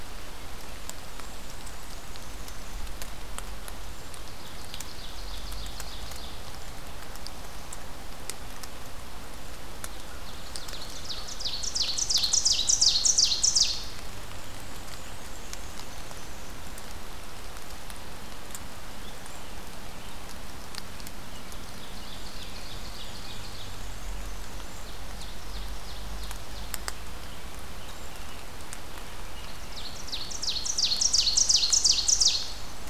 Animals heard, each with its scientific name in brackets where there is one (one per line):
Ovenbird (Seiurus aurocapilla)
Black-and-white Warbler (Mniotilta varia)